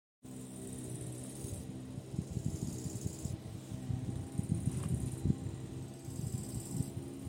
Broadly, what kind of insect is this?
orthopteran